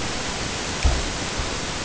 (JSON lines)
{"label": "ambient", "recorder": "HydroMoth"}